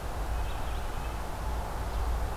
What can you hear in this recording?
Red-breasted Nuthatch, Red-eyed Vireo